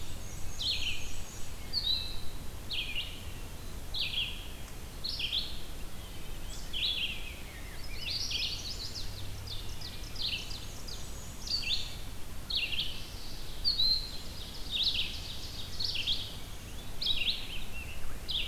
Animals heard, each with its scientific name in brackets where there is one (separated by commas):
Ovenbird (Seiurus aurocapilla), Red-eyed Vireo (Vireo olivaceus), Chestnut-sided Warbler (Setophaga pensylvanica), Wood Thrush (Hylocichla mustelina), Rose-breasted Grosbeak (Pheucticus ludovicianus), Black-and-white Warbler (Mniotilta varia)